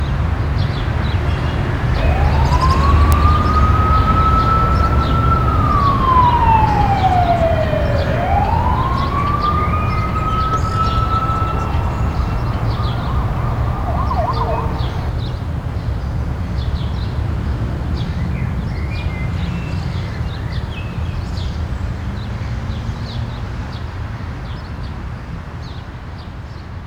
Are many people talking?
no